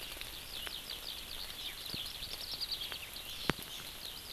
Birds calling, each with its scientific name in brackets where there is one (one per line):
Eurasian Skylark (Alauda arvensis)